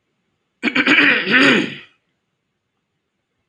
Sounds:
Throat clearing